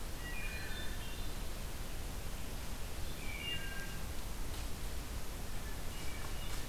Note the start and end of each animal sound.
[0.17, 1.39] Hermit Thrush (Catharus guttatus)
[0.18, 1.03] Wood Thrush (Hylocichla mustelina)
[3.14, 4.06] Wood Thrush (Hylocichla mustelina)
[5.46, 6.66] Hermit Thrush (Catharus guttatus)

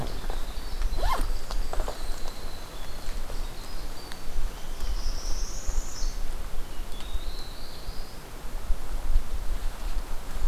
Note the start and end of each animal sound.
[0.00, 5.45] Winter Wren (Troglodytes hiemalis)
[1.13, 2.31] Blackburnian Warbler (Setophaga fusca)
[4.47, 5.08] Olive-sided Flycatcher (Contopus cooperi)
[4.68, 6.18] Northern Parula (Setophaga americana)
[6.81, 8.23] Blackburnian Warbler (Setophaga fusca)

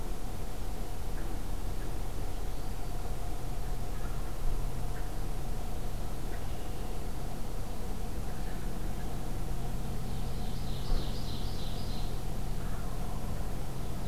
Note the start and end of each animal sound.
[3.91, 4.62] Wild Turkey (Meleagris gallopavo)
[6.12, 7.05] Red-winged Blackbird (Agelaius phoeniceus)
[10.15, 12.22] Ovenbird (Seiurus aurocapilla)
[12.53, 12.98] Wild Turkey (Meleagris gallopavo)

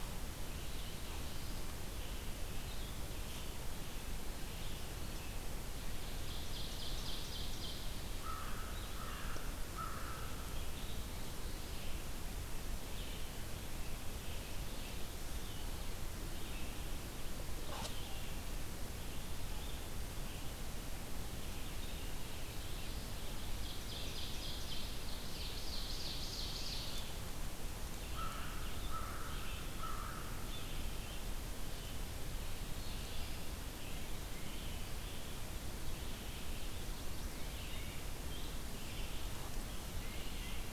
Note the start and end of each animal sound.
[0.00, 22.10] Red-eyed Vireo (Vireo olivaceus)
[0.30, 1.77] Black-throated Blue Warbler (Setophaga caerulescens)
[6.04, 8.06] Ovenbird (Seiurus aurocapilla)
[8.08, 10.40] American Crow (Corvus brachyrhynchos)
[21.88, 23.35] Black-throated Blue Warbler (Setophaga caerulescens)
[23.45, 27.19] Ovenbird (Seiurus aurocapilla)
[27.95, 30.67] American Crow (Corvus brachyrhynchos)
[27.95, 40.72] Red-eyed Vireo (Vireo olivaceus)
[37.13, 38.10] Tufted Titmouse (Baeolophus bicolor)
[39.94, 40.68] Tufted Titmouse (Baeolophus bicolor)

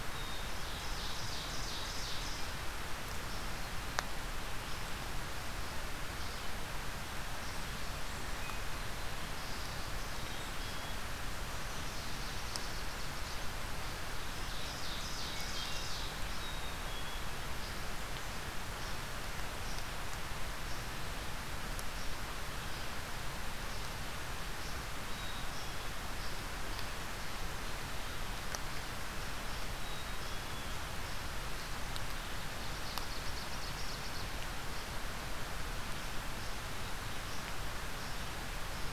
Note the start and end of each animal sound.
[0.00, 1.19] Black-capped Chickadee (Poecile atricapillus)
[0.42, 2.52] Ovenbird (Seiurus aurocapilla)
[10.05, 11.07] Black-capped Chickadee (Poecile atricapillus)
[11.51, 13.49] Ovenbird (Seiurus aurocapilla)
[13.98, 16.12] Ovenbird (Seiurus aurocapilla)
[16.27, 17.33] Black-capped Chickadee (Poecile atricapillus)
[24.99, 25.97] Black-capped Chickadee (Poecile atricapillus)
[29.67, 30.80] Black-capped Chickadee (Poecile atricapillus)
[32.67, 34.37] Ovenbird (Seiurus aurocapilla)

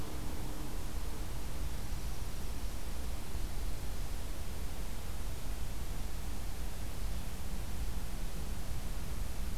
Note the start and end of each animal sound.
[1.58, 2.97] Dark-eyed Junco (Junco hyemalis)

